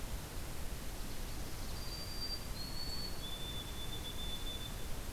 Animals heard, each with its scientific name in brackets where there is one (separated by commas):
Common Yellowthroat (Geothlypis trichas), White-throated Sparrow (Zonotrichia albicollis)